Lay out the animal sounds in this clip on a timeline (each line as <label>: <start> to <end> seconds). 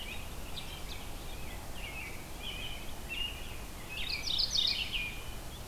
American Robin (Turdus migratorius): 0.0 to 5.2 seconds
Mourning Warbler (Geothlypis philadelphia): 3.6 to 5.2 seconds